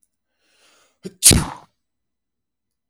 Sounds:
Sneeze